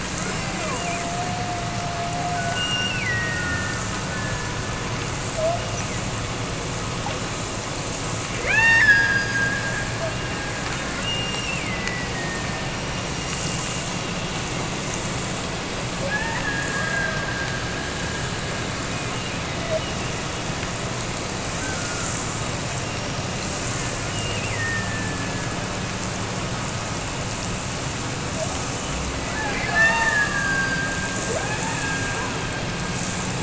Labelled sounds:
0.7	4.6	killer whale, Bigg's (transient), Gulf of Alaska transient, 0.43 to 5.9 kHz
5.4	6.1	killer whale, Bigg's (transient), Gulf of Alaska transient, 0.52 to 2.9 kHz
8.4	9.9	killer whale, Bigg's (transient), Gulf of Alaska transient, 0.39 to 6.8 kHz
10.9	14.1	killer whale, Bigg's (transient), Gulf of Alaska transient, 1.7 to 5.9 kHz
16.0	18.6	killer whale, Bigg's (transient), Gulf of Alaska transient, 0.43 to 2.9 kHz
19.0	20.5	killer whale, Bigg's (transient), Gulf of Alaska transient, 1.7 to 3.1 kHz
22.8	23.7	killer whale, Bigg's (transient), Gulf of Alaska transient, 2.2 to 5.7 kHz
24.1	25.7	killer whale, Bigg's (transient), Gulf of Alaska transient, 1.5 to 2.9 kHz
29.3	33.1	killer whale, Bigg's (transient), Gulf of Alaska transient, 0.36 to 7.7 kHz

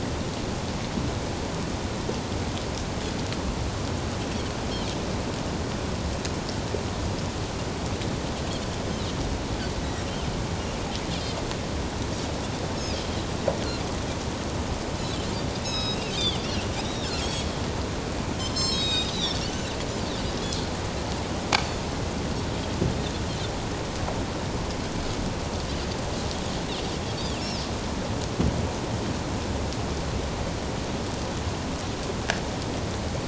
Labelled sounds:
15.6	16.7	Pacific white-sided dolphin, 2.5 to 5.4 kHz
17.2	17.5	Pacific white-sided dolphin, 3.2 to 6.7 kHz
18.4	19.4	Pacific white-sided dolphin, 2.4 to 7.7 kHz
27.4	27.7	Pacific white-sided dolphin, 4.5 to 5.7 kHz

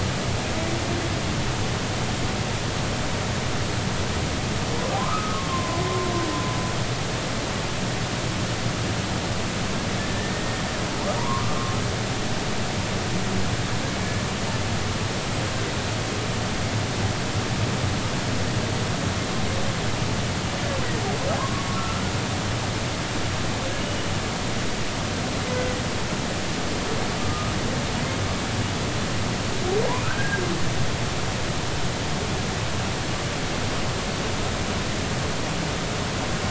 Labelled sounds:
5.1	6.1	humpback whale, 0.96 to 1.3 kHz
10.2	11.4	humpback whale, 0.90 to 2.0 kHz
21.4	22.0	humpback whale, 0.96 to 1.4 kHz
23.8	24.0	humpback whale, 2.8 to 3.0 kHz
27.2	27.5	humpback whale, 1.2 to 1.3 kHz
30.0	30.4	humpback whale, 1.2 to 1.7 kHz

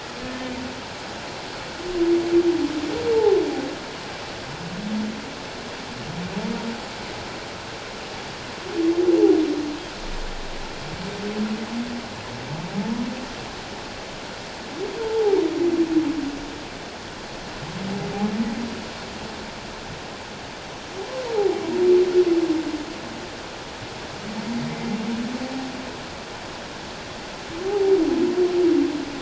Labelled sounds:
0.3	0.5	humpback whale, 1.75 to 1.84 kHz
15.0	15.4	humpback whale, 0.78 to 0.94 kHz
24.7	25.0	humpback whale, 2.0 to 2.1 kHz
27.6	27.9	humpback whale, 0.78 to 0.88 kHz

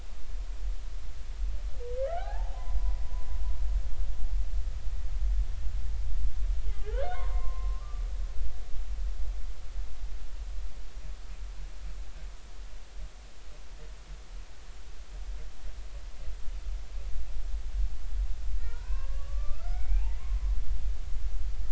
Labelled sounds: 2.0	2.6	humpback whale, 0.80 to 1.8 kHz
6.9	8.1	humpback whale, 0.93 to 1.7 kHz
18.6	20.6	humpback whale, 0.80 to 2.8 kHz

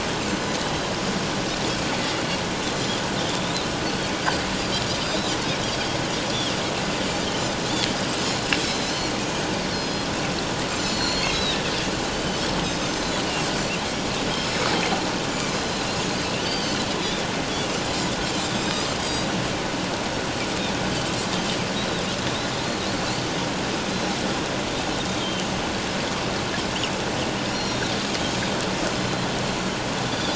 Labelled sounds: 2.7	3.1	Pacific white-sided dolphin, 4.0 to 7.2 kHz
5.0	5.3	Pacific white-sided dolphin, 3.6 to 4.0 kHz
8.6	13.2	Pacific white-sided dolphin, 2.1 to 7.5 kHz
14.4	14.7	Pacific white-sided dolphin, 5.1 to 5.3 kHz
15.5	15.9	Pacific white-sided dolphin, 5.0 to 5.2 kHz
16.4	17.3	Pacific white-sided dolphin, 2.9 to 4.9 kHz
18.5	19.3	Pacific white-sided dolphin, 3.7 to 7.8 kHz
25.2	25.5	Pacific white-sided dolphin, 2.9 to 3.3 kHz
27.5	27.8	Pacific white-sided dolphin, 4.0 to 5.7 kHz
29.0	30.3	Pacific white-sided dolphin, 3.3 to 4.2 kHz

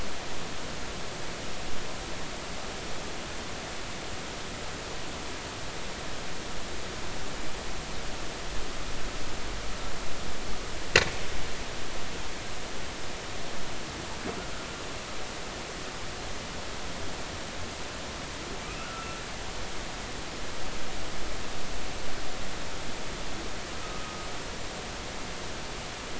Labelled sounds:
18.8	19.2	humpback whale, 1.2 to 1.5 kHz
23.8	24.2	humpback whale, 1.2 to 1.3 kHz

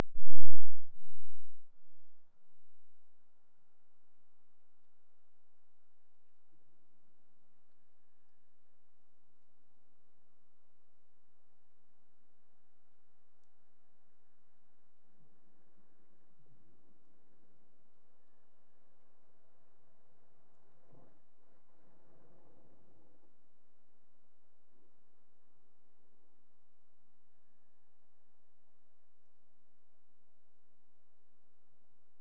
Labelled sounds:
7.5	8.7	killer whale, Bigg's (transient), AT1 transient, 1.5 to 2.9 kHz
18.0	19.4	killer whale, Bigg's (transient), AT1 transient, 1.4 to 3.7 kHz
27.3	28.7	killer whale, Bigg's (transient), AT1 transient, 0.70 to 1.8 kHz

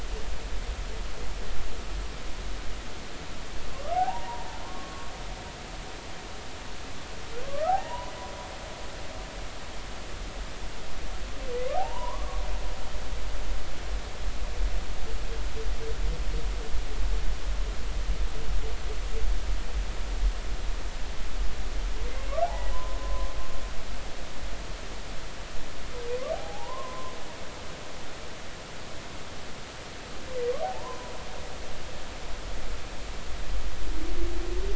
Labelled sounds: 3.9	5.1	humpback whale, 0.80 to 1.2 kHz
7.5	8.1	humpback whale, 0.80 to 1.6 kHz
11.8	12.4	humpback whale, 0.80 to 1.2 kHz
22.4	23.3	humpback whale, 0.80 to 1.1 kHz
26.3	27.1	humpback whale, 0.80 to 1.1 kHz
30.6	31.1	humpback whale, 0.80 to 1.1 kHz

